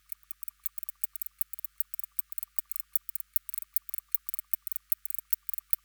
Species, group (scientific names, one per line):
Barbitistes kaltenbachi
Orthoptera